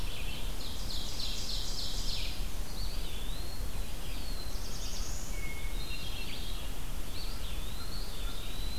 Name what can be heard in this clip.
Red-eyed Vireo, Ovenbird, Eastern Wood-Pewee, Black-throated Blue Warbler, Hermit Thrush, American Crow